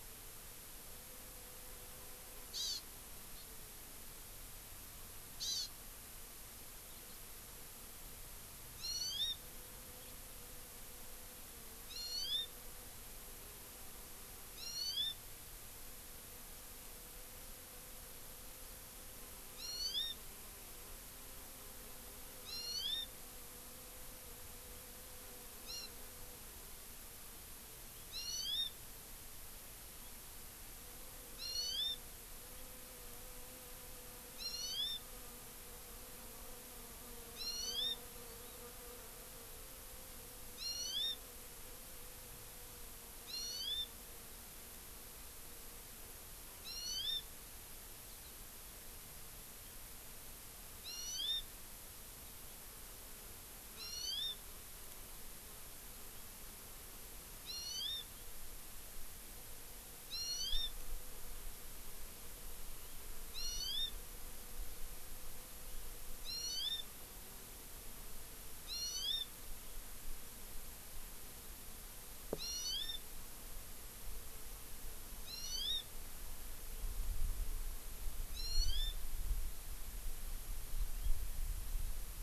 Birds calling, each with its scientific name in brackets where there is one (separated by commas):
Hawaii Amakihi (Chlorodrepanis virens)